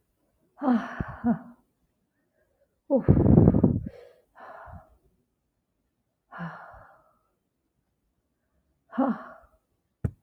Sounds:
Sigh